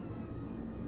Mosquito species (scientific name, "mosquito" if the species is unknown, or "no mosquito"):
Culex quinquefasciatus